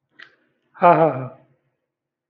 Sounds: Laughter